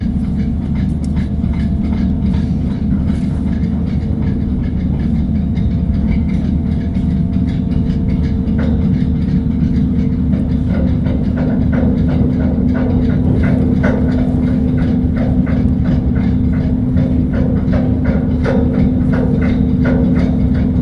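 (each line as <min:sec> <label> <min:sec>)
0:00.0 An engine sounds loudly as a ferry starts moving and gains speed. 0:20.8
0:00.0 Chains clinking loudly and repeatedly in the background. 0:20.8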